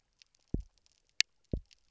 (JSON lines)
{"label": "biophony, double pulse", "recorder": "SoundTrap 300"}